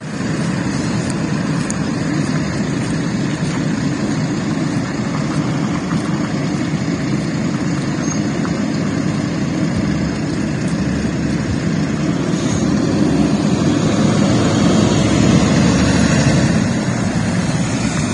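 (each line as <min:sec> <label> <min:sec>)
0:00.0 Engines whirling outside in a city. 0:18.1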